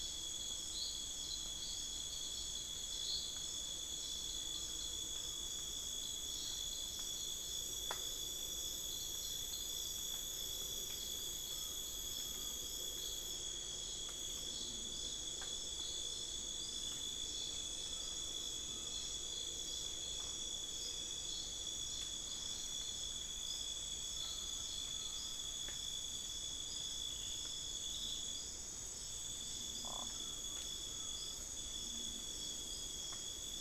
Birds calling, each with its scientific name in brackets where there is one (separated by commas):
Buckley's Forest-Falcon (Micrastur buckleyi)